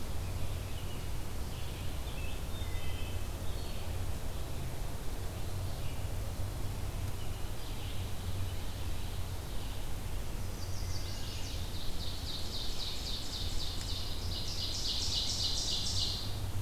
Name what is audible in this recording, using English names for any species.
Scarlet Tanager, Wood Thrush, Ovenbird, Chestnut-sided Warbler